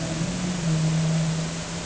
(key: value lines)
label: anthrophony, boat engine
recorder: HydroMoth